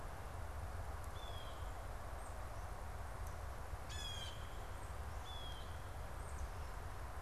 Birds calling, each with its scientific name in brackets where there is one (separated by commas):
Blue Jay (Cyanocitta cristata), unidentified bird, Tufted Titmouse (Baeolophus bicolor)